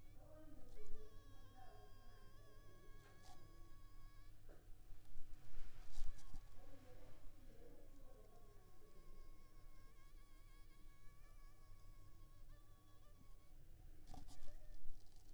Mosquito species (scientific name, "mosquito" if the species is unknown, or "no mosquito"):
Anopheles funestus s.l.